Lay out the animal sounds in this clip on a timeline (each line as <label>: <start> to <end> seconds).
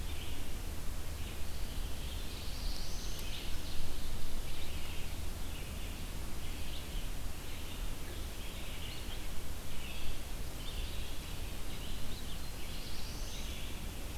Red-eyed Vireo (Vireo olivaceus): 0.0 to 14.2 seconds
Black-throated Blue Warbler (Setophaga caerulescens): 1.6 to 3.5 seconds
Black-throated Blue Warbler (Setophaga caerulescens): 12.2 to 13.5 seconds